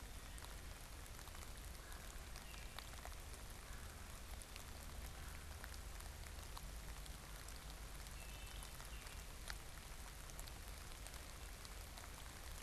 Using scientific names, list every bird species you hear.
Icterus galbula, Hylocichla mustelina, Melanerpes carolinus